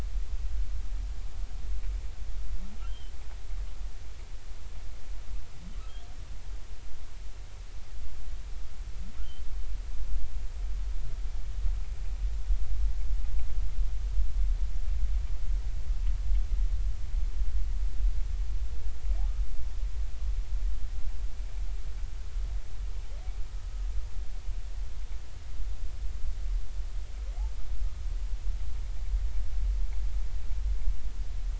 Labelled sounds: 2.8	3.1	humpback whale, 2.6 to 3.3 kHz

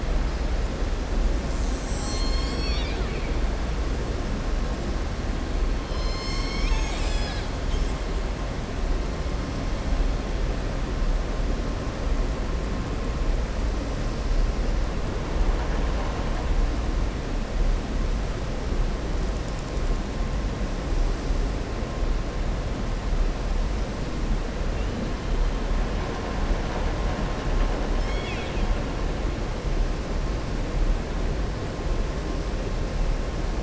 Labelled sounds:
27.9	28.7	killer whale, southern resident, 1.5 to 6.7 kHz

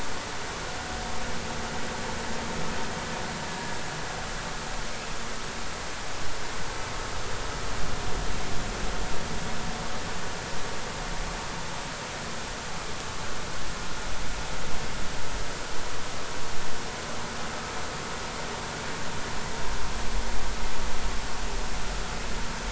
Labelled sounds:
3.5	3.7	vessel noise, 1.6 to 1.8 kHz

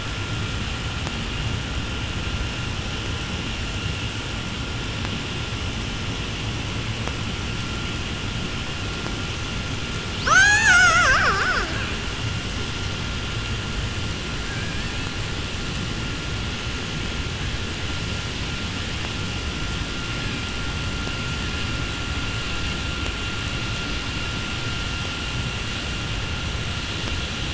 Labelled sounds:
10.1	12.1	killer whale, 0.11 to 8.0 kHz
14.0	15.3	killer whale, 1.2 to 4.9 kHz
20.1	20.6	killer whale, 1.4 to 3.3 kHz

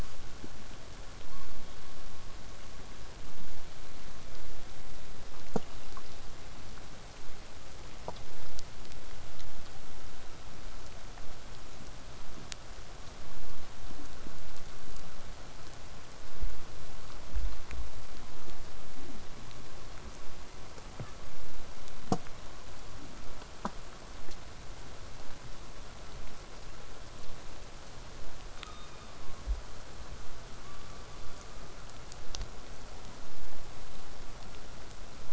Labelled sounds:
1.3	2.2	killer whale, southern resident, call S16, 0.93 to 4.6 kHz
28.6	29.5	killer whale, southern resident, call S16, 0.97 to 6.3 kHz
30.6	31.8	killer whale, southern resident, call S17, 0.97 to 4.8 kHz

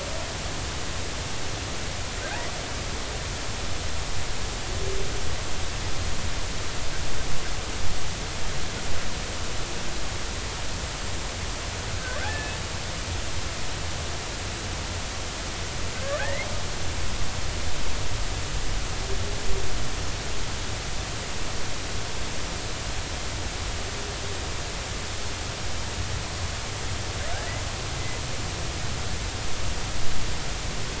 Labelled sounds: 11.9	12.6	humpback whale, 1.4 to 2.7 kHz
16.2	16.5	humpback whale, 1.5 to 2.2 kHz

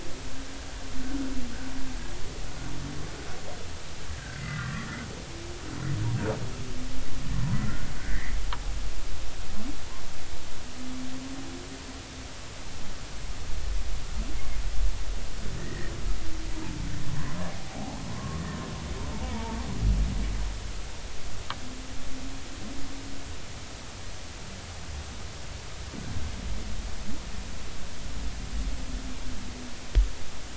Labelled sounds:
4.3	5.0	humpback whale, 1.1 to 2.1 kHz
7.6	8.3	humpback whale, 1.3 to 2.1 kHz
14.3	14.6	humpback whale, 2.0 to 2.2 kHz
15.6	15.9	humpback whale, 1.7 to 2.0 kHz
17.5	18.4	humpback whale, 0.80 to 1.2 kHz
19.2	19.6	humpback whale, 0.86 to 2.3 kHz

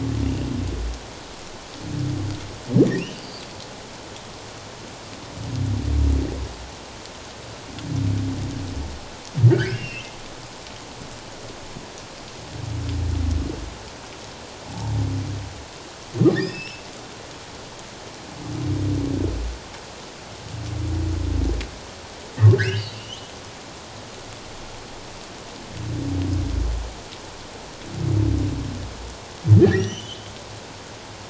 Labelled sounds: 3.0	3.4	humpback whale, 2.4 to 4.9 kHz
9.5	10.1	humpback whale, 1.4 to 3.2 kHz
14.7	14.9	humpback whale, 0.78 to 0.97 kHz
16.3	16.8	humpback whale, 1.6 to 5.8 kHz
22.6	23.3	humpback whale, 1.4 to 3.4 kHz
29.5	30.3	humpback whale, 1.6 to 6.2 kHz

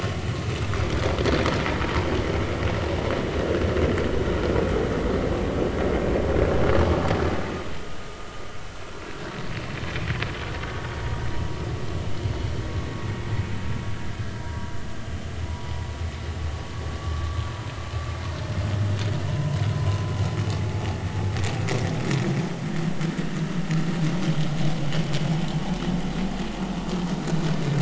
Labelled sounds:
14.4	14.7	vessel noise, 0.93 to 0.99 kHz
17.0	17.4	vessel noise, 1.1 to 1.2 kHz
19.3	19.6	vessel noise, 0.90 to 1.1 kHz

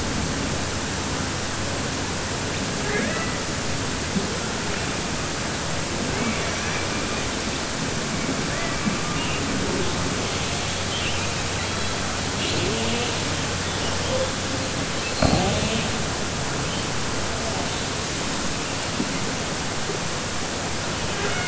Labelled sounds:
6.1	6.9	killer whale, southern resident, 1.1 to 3.1 kHz

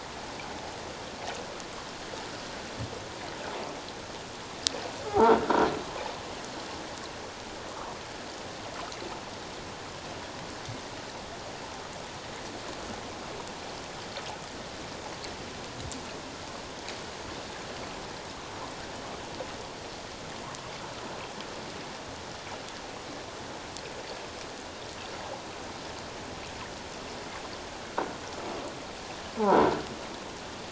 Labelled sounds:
5.1	5.3	croaking sound likely from a nearby submerged object, 0.78 to 1.0 kHz
29.4	29.7	croaking sound likely from a nearby submerged object, 0.78 to 1.1 kHz

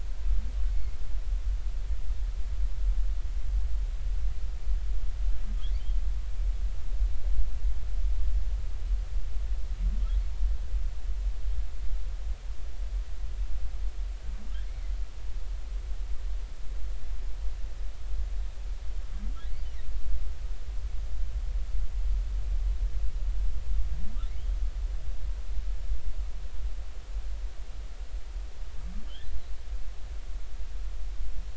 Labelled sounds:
0.7	1.0	humpback whale, 2.1 to 2.2 kHz

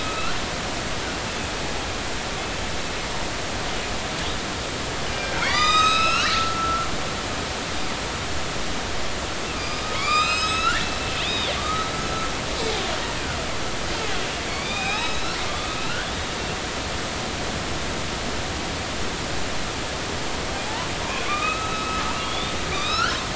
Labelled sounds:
0.0	0.4	killer whale, northern resident, A clan, AB subclan, 1.2 to 1.5 kHz
5.2	6.9	killer whale, northern resident, A clan, AB subclan, 0.93 to 8.0 kHz
9.6	10.9	killer whale, northern resident, A clan, AB subclan, 0.96 to 8.0 kHz
11.2	11.9	killer whale, northern resident, A clan, AB subclan, 1.1 to 3.8 kHz
14.5	16.1	killer whale, northern resident, A clan, AB subclan, 0.80 to 5.5 kHz
21.2	23.2	killer whale, northern resident, A clan, AB subclan, 1.1 to 4.5 kHz

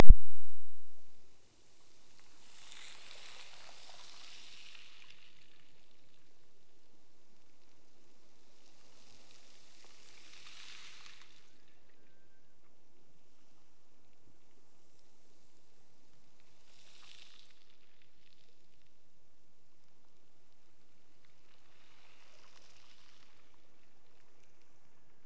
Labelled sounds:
11.4	12.6	killer whale, Bigg's (transient), Gulf of Alaska transient, 1.4 to 2.0 kHz

